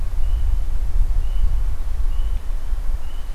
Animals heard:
forest ambience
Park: Acadia National Park